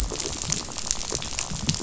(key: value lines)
label: biophony, rattle
recorder: SoundTrap 500